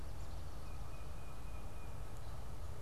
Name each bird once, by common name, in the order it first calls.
Tufted Titmouse